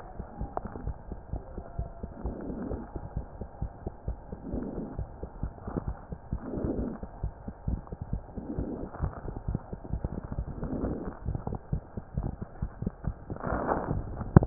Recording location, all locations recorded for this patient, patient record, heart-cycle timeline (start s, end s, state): mitral valve (MV)
aortic valve (AV)+pulmonary valve (PV)+tricuspid valve (TV)+mitral valve (MV)
#Age: Child
#Sex: Male
#Height: 110.0 cm
#Weight: 15.1 kg
#Pregnancy status: False
#Murmur: Absent
#Murmur locations: nan
#Most audible location: nan
#Systolic murmur timing: nan
#Systolic murmur shape: nan
#Systolic murmur grading: nan
#Systolic murmur pitch: nan
#Systolic murmur quality: nan
#Diastolic murmur timing: nan
#Diastolic murmur shape: nan
#Diastolic murmur grading: nan
#Diastolic murmur pitch: nan
#Diastolic murmur quality: nan
#Outcome: Normal
#Campaign: 2015 screening campaign
0.00	3.14	unannotated
3.14	3.26	S1
3.26	3.39	systole
3.39	3.46	S2
3.46	3.59	diastole
3.59	3.70	S1
3.70	3.84	systole
3.84	3.92	S2
3.92	4.05	diastole
4.05	4.16	S1
4.16	4.30	systole
4.30	4.38	S2
4.38	4.52	diastole
4.52	4.63	S1
4.63	4.76	systole
4.76	4.85	S2
4.85	4.98	diastole
4.98	5.07	S1
5.07	5.21	systole
5.21	5.28	S2
5.28	5.42	diastole
5.42	5.52	S1
5.52	5.66	systole
5.66	5.73	S2
5.73	5.86	diastole
5.86	5.94	S1
5.94	6.10	systole
6.10	6.17	S2
6.17	6.30	diastole
6.30	6.41	S1
6.41	14.46	unannotated